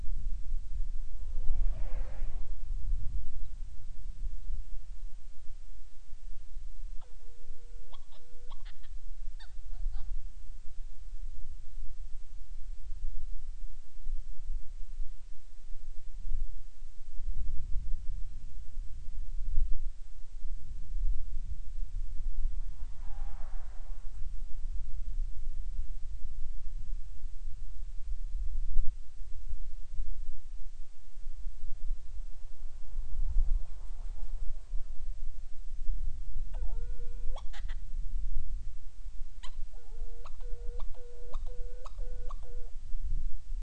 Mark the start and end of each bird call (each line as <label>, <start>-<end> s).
Hawaiian Petrel (Pterodroma sandwichensis), 6.9-10.2 s
Hawaiian Petrel (Pterodroma sandwichensis), 36.4-37.8 s
Hawaiian Petrel (Pterodroma sandwichensis), 39.3-42.8 s